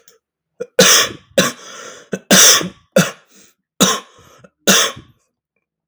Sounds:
Cough